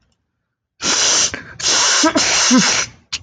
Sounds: Sniff